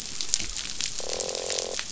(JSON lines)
{"label": "biophony, croak", "recorder": "SoundTrap 500"}